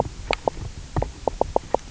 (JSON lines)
{"label": "biophony, knock croak", "recorder": "SoundTrap 300"}